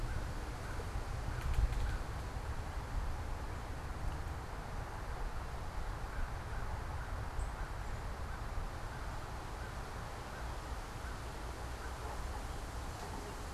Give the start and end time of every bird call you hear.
[0.00, 12.24] American Crow (Corvus brachyrhynchos)

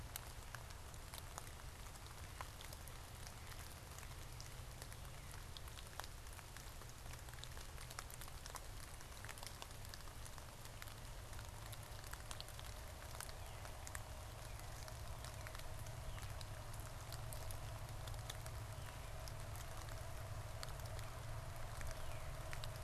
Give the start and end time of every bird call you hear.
[13.12, 22.82] Northern Cardinal (Cardinalis cardinalis)

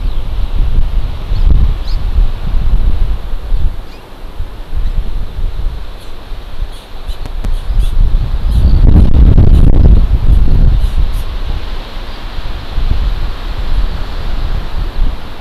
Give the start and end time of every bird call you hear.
[0.00, 0.30] Eurasian Skylark (Alauda arvensis)
[1.30, 1.50] Hawaii Amakihi (Chlorodrepanis virens)
[1.80, 2.00] Hawaii Amakihi (Chlorodrepanis virens)
[3.90, 4.00] Hawaii Amakihi (Chlorodrepanis virens)
[6.00, 6.10] Hawaii Amakihi (Chlorodrepanis virens)
[6.70, 6.80] Hawaii Amakihi (Chlorodrepanis virens)
[7.10, 7.20] Hawaii Amakihi (Chlorodrepanis virens)
[7.80, 8.00] Hawaii Amakihi (Chlorodrepanis virens)
[8.50, 8.70] Hawaii Amakihi (Chlorodrepanis virens)
[10.30, 10.40] Hawaii Amakihi (Chlorodrepanis virens)
[10.80, 11.30] Hawaii Amakihi (Chlorodrepanis virens)

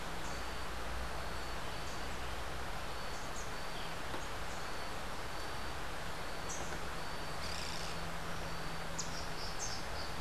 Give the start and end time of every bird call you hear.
[0.00, 0.65] Rufous-capped Warbler (Basileuterus rufifrons)
[2.95, 6.95] Rufous-capped Warbler (Basileuterus rufifrons)
[7.35, 8.05] Boat-billed Flycatcher (Megarynchus pitangua)
[8.85, 10.15] Red-crowned Ant-Tanager (Habia rubica)

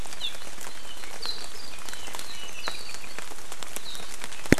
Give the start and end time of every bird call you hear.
[0.00, 3.13] Apapane (Himatione sanguinea)

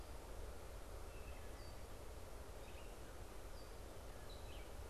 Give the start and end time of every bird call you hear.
[1.00, 1.80] Wood Thrush (Hylocichla mustelina)
[1.90, 4.90] unidentified bird

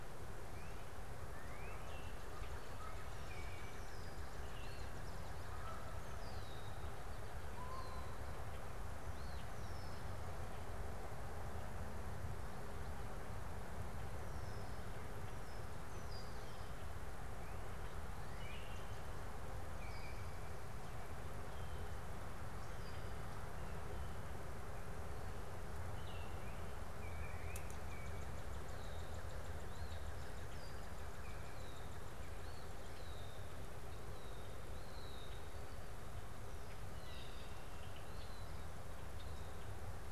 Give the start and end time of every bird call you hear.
[0.00, 5.50] Northern Cardinal (Cardinalis cardinalis)
[3.80, 8.20] Red-winged Blackbird (Agelaius phoeniceus)
[4.20, 5.20] Eastern Phoebe (Sayornis phoebe)
[5.40, 8.50] Canada Goose (Branta canadensis)
[9.00, 10.20] Eastern Phoebe (Sayornis phoebe)
[14.10, 16.80] Red-winged Blackbird (Agelaius phoeniceus)
[16.80, 19.30] Northern Cardinal (Cardinalis cardinalis)
[25.80, 28.60] Baltimore Oriole (Icterus galbula)
[26.80, 31.10] Northern Cardinal (Cardinalis cardinalis)
[32.20, 33.10] Eastern Phoebe (Sayornis phoebe)
[33.80, 40.12] Red-winged Blackbird (Agelaius phoeniceus)
[37.60, 40.12] Eastern Phoebe (Sayornis phoebe)

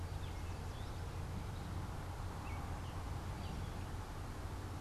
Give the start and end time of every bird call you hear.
[0.00, 4.80] Gray Catbird (Dumetella carolinensis)

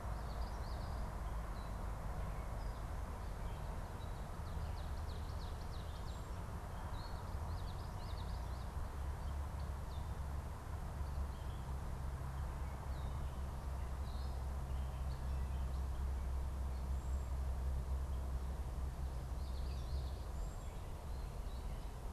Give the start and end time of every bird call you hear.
[0.00, 1.10] Common Yellowthroat (Geothlypis trichas)
[4.20, 6.30] Ovenbird (Seiurus aurocapilla)
[7.40, 8.90] Common Yellowthroat (Geothlypis trichas)
[16.80, 17.40] Cedar Waxwing (Bombycilla cedrorum)
[19.20, 20.20] Common Yellowthroat (Geothlypis trichas)
[20.30, 20.80] Cedar Waxwing (Bombycilla cedrorum)

